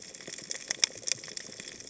{"label": "biophony, cascading saw", "recorder": "HydroMoth"}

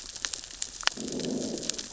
{"label": "biophony, growl", "recorder": "SoundTrap 600 or HydroMoth"}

